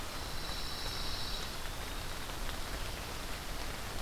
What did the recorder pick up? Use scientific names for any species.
Setophaga pinus